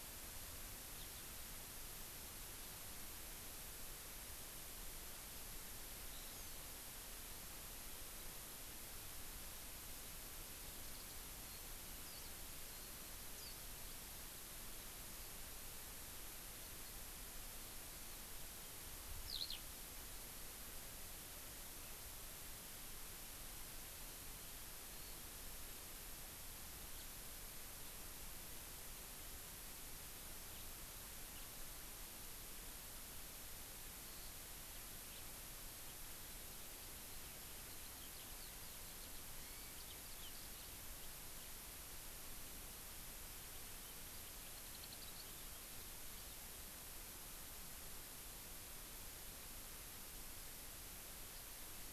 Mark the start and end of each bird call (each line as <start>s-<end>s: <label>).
1.0s-1.2s: Eurasian Skylark (Alauda arvensis)
6.1s-6.6s: Hawaii Amakihi (Chlorodrepanis virens)
10.8s-11.2s: Warbling White-eye (Zosterops japonicus)
12.1s-12.3s: Warbling White-eye (Zosterops japonicus)
13.4s-13.6s: Warbling White-eye (Zosterops japonicus)
19.3s-19.6s: Eurasian Skylark (Alauda arvensis)
26.9s-27.1s: House Finch (Haemorhous mexicanus)
30.5s-30.7s: House Finch (Haemorhous mexicanus)
34.0s-34.4s: Eurasian Skylark (Alauda arvensis)
35.1s-35.3s: House Finch (Haemorhous mexicanus)
36.2s-41.5s: Eurasian Skylark (Alauda arvensis)
43.5s-46.4s: Eurasian Skylark (Alauda arvensis)